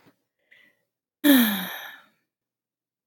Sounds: Sigh